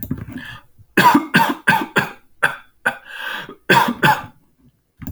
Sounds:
Cough